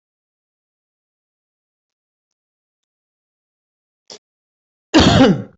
{"expert_labels": [{"quality": "good", "cough_type": "unknown", "dyspnea": false, "wheezing": false, "stridor": false, "choking": false, "congestion": false, "nothing": true, "diagnosis": "healthy cough", "severity": "pseudocough/healthy cough"}], "age": 43, "gender": "male", "respiratory_condition": false, "fever_muscle_pain": false, "status": "healthy"}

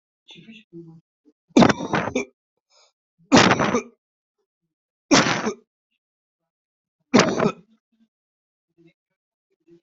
{"expert_labels": [{"quality": "ok", "cough_type": "wet", "dyspnea": false, "wheezing": false, "stridor": false, "choking": false, "congestion": false, "nothing": true, "diagnosis": "lower respiratory tract infection", "severity": "unknown"}]}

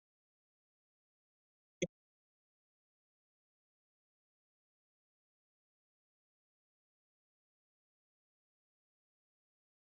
{"expert_labels": [{"quality": "no cough present", "dyspnea": false, "wheezing": false, "stridor": false, "choking": false, "congestion": false, "nothing": false}]}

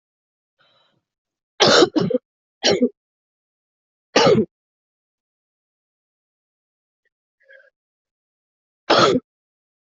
{"expert_labels": [{"quality": "ok", "cough_type": "dry", "dyspnea": false, "wheezing": false, "stridor": false, "choking": false, "congestion": false, "nothing": true, "diagnosis": "lower respiratory tract infection", "severity": "mild"}], "age": 42, "gender": "female", "respiratory_condition": true, "fever_muscle_pain": false, "status": "symptomatic"}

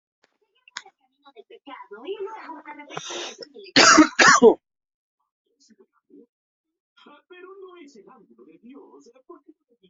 {"expert_labels": [{"quality": "good", "cough_type": "dry", "dyspnea": false, "wheezing": false, "stridor": true, "choking": false, "congestion": false, "nothing": true, "diagnosis": "obstructive lung disease", "severity": "mild"}], "age": 33, "gender": "male", "respiratory_condition": true, "fever_muscle_pain": false, "status": "healthy"}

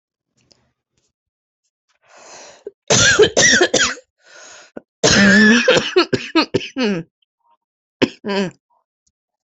{"expert_labels": [{"quality": "good", "cough_type": "dry", "dyspnea": false, "wheezing": false, "stridor": false, "choking": false, "congestion": false, "nothing": true, "diagnosis": "upper respiratory tract infection", "severity": "mild"}], "age": 30, "gender": "female", "respiratory_condition": true, "fever_muscle_pain": true, "status": "symptomatic"}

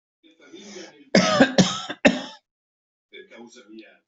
{"expert_labels": [{"quality": "ok", "cough_type": "dry", "dyspnea": false, "wheezing": true, "stridor": false, "choking": false, "congestion": false, "nothing": false, "diagnosis": "COVID-19", "severity": "mild"}, {"quality": "poor", "cough_type": "dry", "dyspnea": false, "wheezing": false, "stridor": false, "choking": false, "congestion": false, "nothing": true, "diagnosis": "COVID-19", "severity": "mild"}, {"quality": "good", "cough_type": "dry", "dyspnea": false, "wheezing": false, "stridor": false, "choking": false, "congestion": false, "nothing": true, "diagnosis": "upper respiratory tract infection", "severity": "mild"}, {"quality": "good", "cough_type": "dry", "dyspnea": false, "wheezing": false, "stridor": false, "choking": false, "congestion": false, "nothing": true, "diagnosis": "healthy cough", "severity": "pseudocough/healthy cough"}], "age": 60, "gender": "male", "respiratory_condition": false, "fever_muscle_pain": false, "status": "symptomatic"}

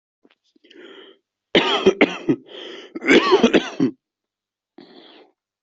{"expert_labels": [{"quality": "ok", "cough_type": "unknown", "dyspnea": false, "wheezing": false, "stridor": false, "choking": false, "congestion": false, "nothing": true, "diagnosis": "lower respiratory tract infection", "severity": "mild"}], "age": 22, "gender": "male", "respiratory_condition": false, "fever_muscle_pain": true, "status": "symptomatic"}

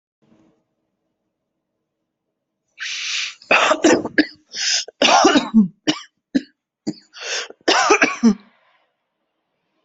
{"expert_labels": [{"quality": "good", "cough_type": "unknown", "dyspnea": false, "wheezing": false, "stridor": false, "choking": false, "congestion": false, "nothing": true, "diagnosis": "upper respiratory tract infection", "severity": "mild"}], "age": 33, "gender": "female", "respiratory_condition": true, "fever_muscle_pain": false, "status": "healthy"}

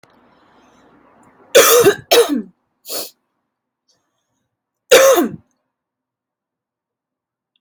{"expert_labels": [{"quality": "ok", "cough_type": "dry", "dyspnea": false, "wheezing": false, "stridor": false, "choking": false, "congestion": true, "nothing": false, "diagnosis": "upper respiratory tract infection", "severity": "pseudocough/healthy cough"}], "age": 29, "gender": "female", "respiratory_condition": false, "fever_muscle_pain": false, "status": "healthy"}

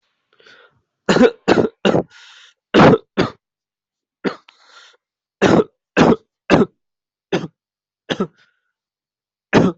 {"expert_labels": [{"quality": "good", "cough_type": "dry", "dyspnea": false, "wheezing": false, "stridor": false, "choking": false, "congestion": false, "nothing": true, "diagnosis": "COVID-19", "severity": "mild"}], "age": 20, "gender": "male", "respiratory_condition": true, "fever_muscle_pain": false, "status": "COVID-19"}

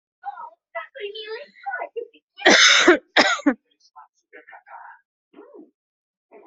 {"expert_labels": [{"quality": "good", "cough_type": "dry", "dyspnea": false, "wheezing": false, "stridor": false, "choking": false, "congestion": false, "nothing": true, "diagnosis": "healthy cough", "severity": "pseudocough/healthy cough"}], "gender": "female", "respiratory_condition": false, "fever_muscle_pain": false, "status": "COVID-19"}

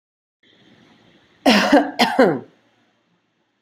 {"expert_labels": [{"quality": "good", "cough_type": "dry", "dyspnea": false, "wheezing": false, "stridor": false, "choking": false, "congestion": false, "nothing": true, "diagnosis": "healthy cough", "severity": "pseudocough/healthy cough"}], "age": 45, "gender": "female", "respiratory_condition": false, "fever_muscle_pain": false, "status": "COVID-19"}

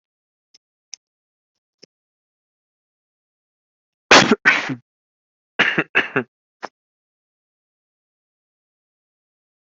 {"expert_labels": [{"quality": "ok", "cough_type": "dry", "dyspnea": false, "wheezing": false, "stridor": false, "choking": false, "congestion": false, "nothing": true, "diagnosis": "upper respiratory tract infection", "severity": "mild"}], "age": 24, "gender": "female", "respiratory_condition": false, "fever_muscle_pain": false, "status": "healthy"}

